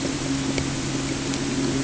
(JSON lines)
{"label": "anthrophony, boat engine", "recorder": "HydroMoth"}